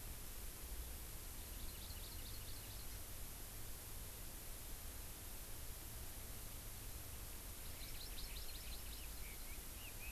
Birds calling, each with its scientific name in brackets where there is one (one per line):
Chinese Hwamei (Garrulax canorus)
Hawaii Amakihi (Chlorodrepanis virens)